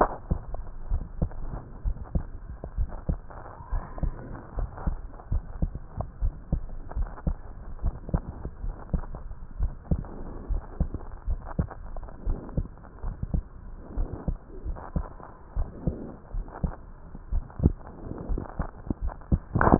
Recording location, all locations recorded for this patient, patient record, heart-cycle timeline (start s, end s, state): aortic valve (AV)
aortic valve (AV)+pulmonary valve (PV)+tricuspid valve (TV)+mitral valve (MV)
#Age: Child
#Sex: Male
#Height: 130.0 cm
#Weight: 28.0 kg
#Pregnancy status: False
#Murmur: Absent
#Murmur locations: nan
#Most audible location: nan
#Systolic murmur timing: nan
#Systolic murmur shape: nan
#Systolic murmur grading: nan
#Systolic murmur pitch: nan
#Systolic murmur quality: nan
#Diastolic murmur timing: nan
#Diastolic murmur shape: nan
#Diastolic murmur grading: nan
#Diastolic murmur pitch: nan
#Diastolic murmur quality: nan
#Outcome: Normal
#Campaign: 2015 screening campaign
0.00	0.42	unannotated
0.42	0.88	diastole
0.88	1.04	S1
1.04	1.20	systole
1.20	1.32	S2
1.32	1.84	diastole
1.84	1.98	S1
1.98	2.14	systole
2.14	2.26	S2
2.26	2.76	diastole
2.76	2.90	S1
2.90	3.06	systole
3.06	3.20	S2
3.20	3.70	diastole
3.70	3.84	S1
3.84	3.96	systole
3.96	4.10	S2
4.10	4.56	diastole
4.56	4.70	S1
4.70	4.85	systole
4.85	4.98	S2
4.98	5.30	diastole
5.30	5.44	S1
5.44	5.60	systole
5.60	5.74	S2
5.74	6.20	diastole
6.20	6.34	S1
6.34	6.49	systole
6.49	6.61	S2
6.61	6.94	diastole
6.94	7.08	S1
7.08	7.24	systole
7.24	7.38	S2
7.38	7.82	diastole
7.82	7.94	S1
7.94	8.08	systole
8.08	8.18	S2
8.18	8.62	diastole
8.62	8.76	S1
8.76	8.92	systole
8.92	9.06	S2
9.06	9.58	diastole
9.58	9.72	S1
9.72	9.90	systole
9.90	10.04	S2
10.04	10.48	diastole
10.48	10.62	S1
10.62	10.78	systole
10.78	10.88	S2
10.88	11.26	diastole
11.26	11.40	S1
11.40	11.58	systole
11.58	11.70	S2
11.70	12.26	diastole
12.26	12.38	S1
12.38	12.54	systole
12.54	12.64	S2
12.64	13.04	diastole
13.04	13.16	S1
13.16	13.32	systole
13.32	13.46	S2
13.46	13.96	diastole
13.96	14.08	S1
14.08	14.25	systole
14.25	14.36	S2
14.36	14.64	diastole
14.64	14.78	S1
14.78	14.94	systole
14.94	15.06	S2
15.06	15.56	diastole
15.56	15.70	S1
15.70	15.82	systole
15.82	15.94	S2
15.94	16.34	diastole
16.34	16.46	S1
16.46	16.62	systole
16.62	16.74	S2
16.74	17.17	diastole
17.17	19.79	unannotated